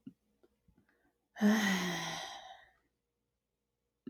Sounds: Sigh